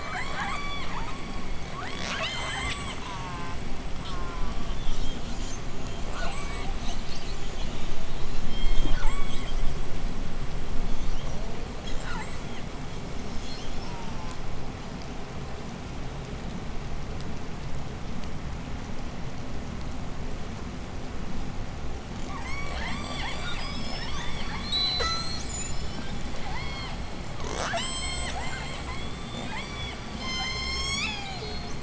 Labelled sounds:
0.2	3.1	killer whale, southern resident, J pod, 0.50 to 8.0 kHz
3.1	4.9	killer whale, southern resident, J pod, call S04, 0.52 to 2.6 kHz
5.7	6.9	killer whale, southern resident, J pod, 0.46 to 8.0 kHz
8.3	9.7	killer whale, southern resident, J pod, 0.52 to 8.0 kHz
11.6	12.8	killer whale, southern resident, J pod, 0.57 to 8.0 kHz
13.1	14.4	killer whale, southern resident, J pod, 0.59 to 8.0 kHz
13.5	14.6	killer whale, southern resident, J pod, call S04, 0.46 to 1.5 kHz
22.1	31.8	killer whale, southern resident, J pod, 0.13 to 8.0 kHz

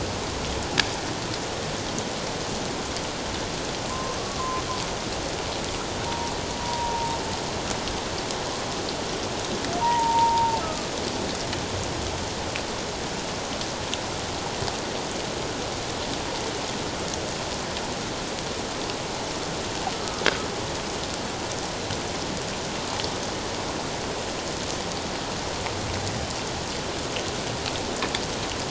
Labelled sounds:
3.9	4.6	humpback whale, 0.91 to 1.2 kHz
6.1	7.2	humpback whale, 0.88 to 1.0 kHz
9.8	10.9	humpback whale, 0.84 to 1.3 kHz

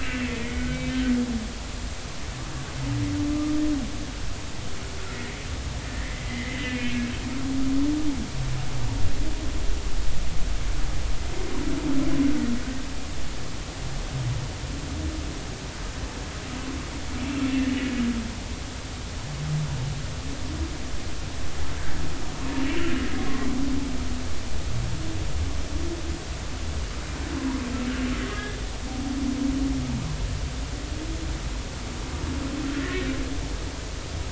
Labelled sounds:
0.0	0.3	humpback whale, 2.6 to 2.8 kHz
3.3	3.5	humpback whale, 1.15 to 1.25 kHz
5.9	7.0	humpback whale, 1.7 to 2.8 kHz
28.3	28.6	humpback whale, 1.6 to 1.8 kHz
32.8	33.1	humpback whale, 1.7 to 2.0 kHz

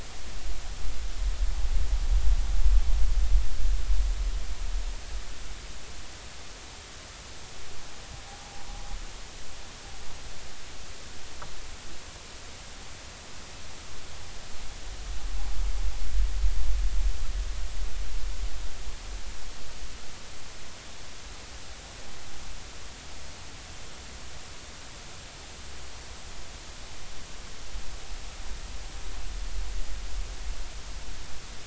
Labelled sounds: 8.3	8.5	vessel noise, 0.80 to 0.90 kHz

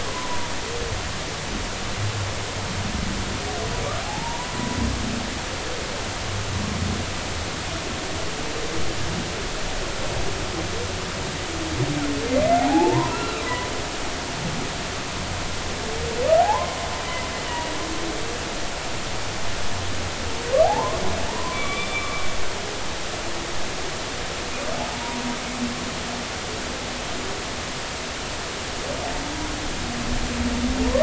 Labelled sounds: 0.1	0.5	humpback whale, 0.90 to 1.1 kHz
4.0	4.5	humpback whale, 0.80 to 1.1 kHz
12.3	13.7	humpback whale, 0.80 to 2.8 kHz
16.4	16.8	humpback whale, 0.80 to 1.1 kHz
17.5	17.7	humpback whale, 2.8 to 3.0 kHz
20.6	22.1	humpback whale, 0.80 to 3.6 kHz
24.9	25.2	humpback whale, 0.83 to 0.99 kHz

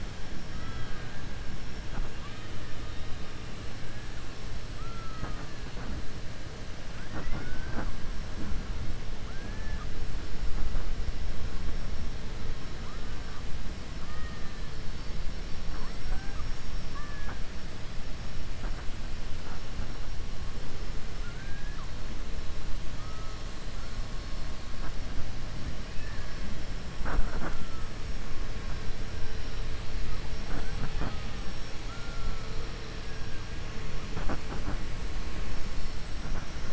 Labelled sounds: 0.5	1.2	killer whale, 0.79 to 3.8 kHz
2.1	2.7	killer whale, 1.1 to 3.8 kHz
9.3	9.9	killer whale, 0.85 to 2.5 kHz
14.0	14.5	killer whale, 1.2 to 1.9 kHz
16.8	17.4	killer whale, 0.36 to 2.4 kHz
21.1	21.9	killer whale, 1.0 to 2.5 kHz
25.9	26.3	killer whale, 1.1 to 2.6 kHz

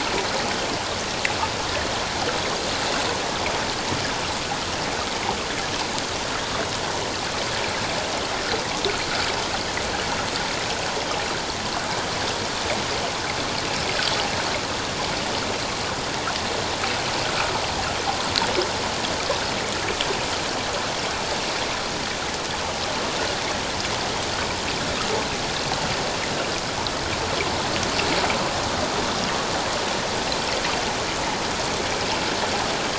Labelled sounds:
17.3	17.6	water noise, 1.2 to 1.4 kHz

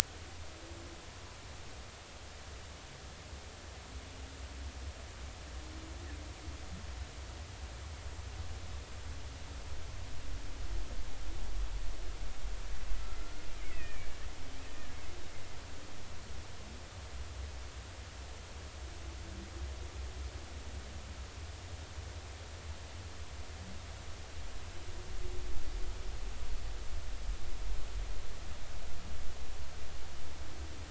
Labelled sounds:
13.6	14.1	killer whale, Bigg's (transient), 1.7 to 2.7 kHz

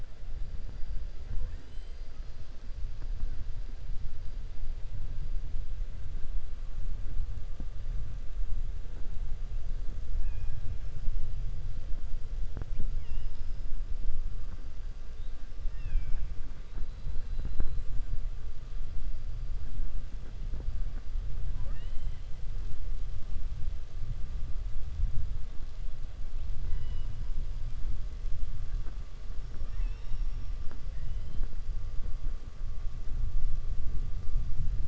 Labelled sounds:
10.1	10.6	killer whale, 0.83 to 3.3 kHz
15.6	16.3	killer whale, 0.79 to 3.6 kHz

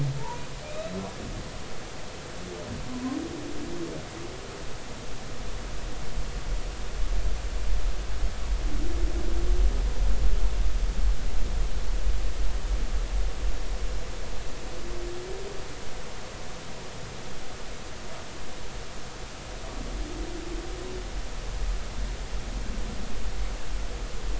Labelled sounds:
0.2	1.0	humpback whale, 0.83 to 4.0 kHz

